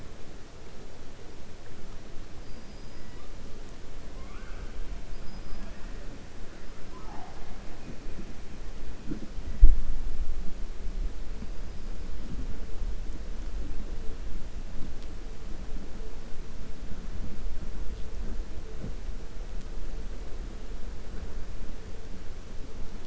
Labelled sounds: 2.4	3.1	killer whale, 4.8 to 5.2 kHz
5.1	5.7	killer whale, 4.4 to 5.1 kHz

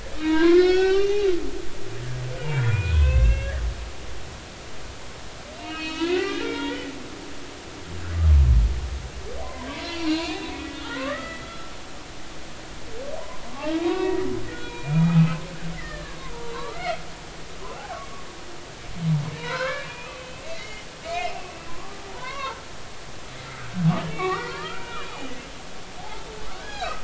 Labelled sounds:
0.2	1.3	humpback whale, 0.90 to 5.8 kHz
2.4	3.6	humpback whale, 0.96 to 3.8 kHz
5.5	6.9	humpback whale, 1.2 to 4.7 kHz
9.4	11.7	humpback whale, 0.90 to 7.1 kHz
13.5	15.4	humpback whale, 0.80 to 3.9 kHz
15.8	16.2	humpback whale, 1.6 to 2.1 kHz
16.4	17.0	humpback whale, 0.90 to 4.1 kHz
19.4	22.6	humpback whale, 0.86 to 5.3 kHz
23.4	25.3	humpback whale, 0.90 to 3.9 kHz
26.0	27.0	humpback whale, 0.80 to 1.8 kHz

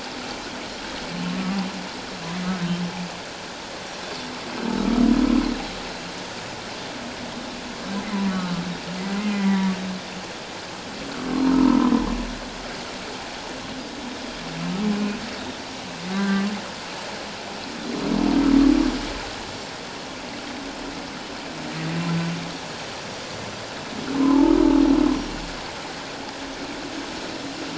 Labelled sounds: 1.2	1.6	humpback whale, 1.0 to 1.2 kHz
8.3	8.6	humpback whale, 1.3 to 1.5 kHz
9.2	9.7	humpback whale, 0.91 to 2.5 kHz
11.5	11.9	humpback whale, 0.91 to 1.1 kHz
14.9	15.2	humpback whale, 2.4 to 2.6 kHz
16.1	16.4	humpback whale, 1.1 to 1.6 kHz
24.2	24.5	humpback whale, 0.81 to 1.2 kHz

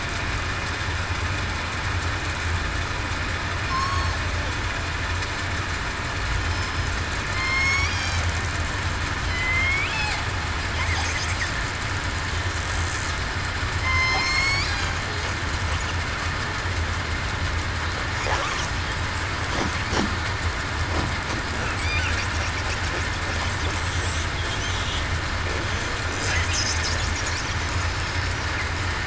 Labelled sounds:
3.6	4.1	killer whale, southern resident, 1.0 to 5.5 kHz
6.5	6.9	killer whale, southern resident, 5.1 to 5.2 kHz
7.3	7.9	killer whale, southern resident, 1.0 to 8.0 kHz
9.2	9.8	killer whale, southern resident, 3.0 to 3.4 kHz
13.8	14.6	killer whale, southern resident, 2.0 to 7.9 kHz

